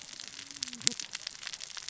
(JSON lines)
{"label": "biophony, cascading saw", "recorder": "SoundTrap 600 or HydroMoth"}